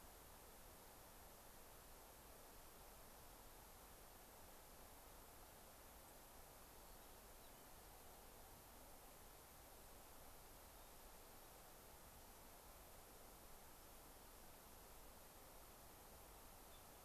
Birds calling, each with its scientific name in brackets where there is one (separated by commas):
unidentified bird, White-crowned Sparrow (Zonotrichia leucophrys)